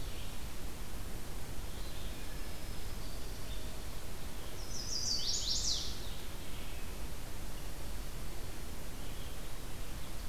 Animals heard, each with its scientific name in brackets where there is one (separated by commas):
Chestnut-sided Warbler (Setophaga pensylvanica), Red-eyed Vireo (Vireo olivaceus), Black-throated Green Warbler (Setophaga virens)